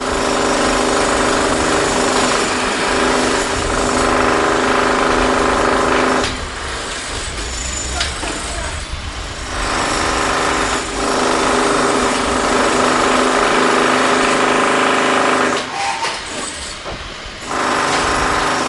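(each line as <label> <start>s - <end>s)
A piece of construction equipment emits a loud, repeating, echoing sound. 0.0s - 6.4s
A piece of construction equipment emits a muffled, distant, repeating, echoing sound. 6.3s - 9.6s
A person screams loudly in the distance with a muffled sound. 7.6s - 8.9s
A piece of construction equipment emits a loud, muffled, repeating, echoing sound. 9.6s - 15.7s
A distant piece of construction equipment emits a steady mechanical noise followed by echoing, high-pitched, loud mechanical ringing. 15.7s - 17.4s
A piece of construction equipment emits a loud, repeating, echoing sound. 17.3s - 18.7s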